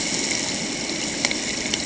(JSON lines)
{"label": "ambient", "recorder": "HydroMoth"}